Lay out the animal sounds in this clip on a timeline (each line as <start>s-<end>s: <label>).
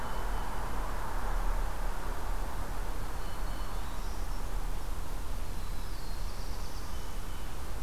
2.9s-4.8s: Black-throated Green Warbler (Setophaga virens)
5.2s-7.8s: Black-throated Blue Warbler (Setophaga caerulescens)